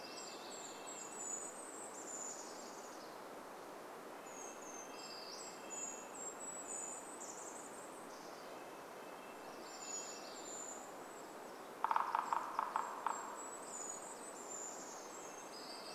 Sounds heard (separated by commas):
warbler song, Golden-crowned Kinglet song, woodpecker drumming, Brown Creeper song, Red-breasted Nuthatch song, Brown Creeper call